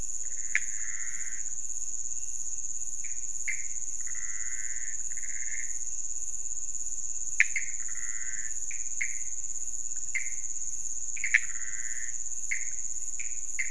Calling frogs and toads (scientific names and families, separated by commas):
Pithecopus azureus (Hylidae)